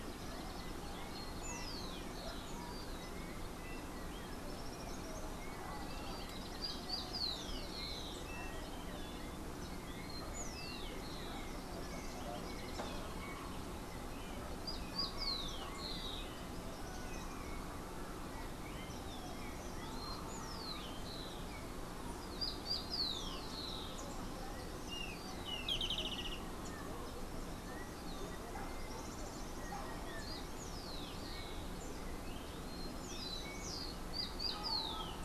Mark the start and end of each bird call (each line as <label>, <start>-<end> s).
Rufous-collared Sparrow (Zonotrichia capensis), 0.0-24.5 s
Slate-throated Redstart (Myioborus miniatus), 24.7-26.8 s
Rufous-collared Sparrow (Zonotrichia capensis), 28.6-35.2 s